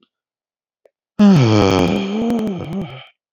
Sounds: Sigh